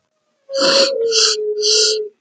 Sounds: Sniff